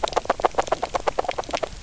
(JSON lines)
{"label": "biophony, knock croak", "recorder": "SoundTrap 300"}